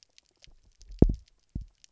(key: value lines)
label: biophony, double pulse
recorder: SoundTrap 300